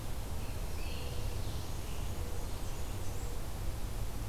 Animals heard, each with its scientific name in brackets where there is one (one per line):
Scarlet Tanager (Piranga olivacea)
Blackburnian Warbler (Setophaga fusca)
Black-throated Blue Warbler (Setophaga caerulescens)